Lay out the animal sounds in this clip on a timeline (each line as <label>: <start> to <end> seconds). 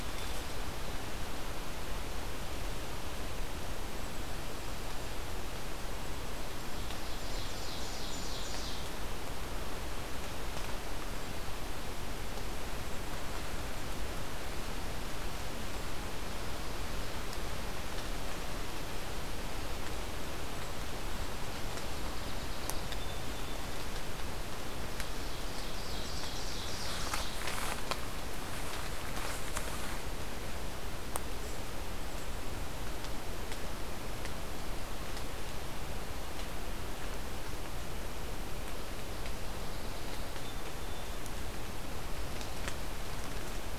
Golden-crowned Kinglet (Regulus satrapa): 5.9 to 8.7 seconds
Ovenbird (Seiurus aurocapilla): 6.8 to 9.0 seconds
Golden-crowned Kinglet (Regulus satrapa): 20.3 to 22.6 seconds
Song Sparrow (Melospiza melodia): 21.4 to 23.9 seconds
Ovenbird (Seiurus aurocapilla): 24.8 to 27.5 seconds
Song Sparrow (Melospiza melodia): 39.2 to 41.2 seconds